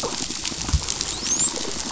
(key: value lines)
label: biophony, dolphin
recorder: SoundTrap 500

label: biophony
recorder: SoundTrap 500